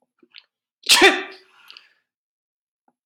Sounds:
Sneeze